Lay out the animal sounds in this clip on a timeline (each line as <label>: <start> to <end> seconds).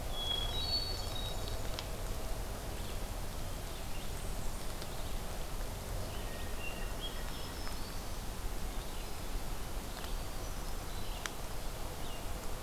Hermit Thrush (Catharus guttatus): 0.0 to 1.8 seconds
Blackburnian Warbler (Setophaga fusca): 3.6 to 4.9 seconds
Hermit Thrush (Catharus guttatus): 5.9 to 7.4 seconds
Black-throated Green Warbler (Setophaga virens): 7.2 to 8.3 seconds
Hermit Thrush (Catharus guttatus): 9.9 to 11.5 seconds